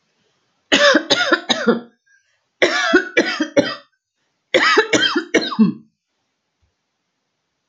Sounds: Cough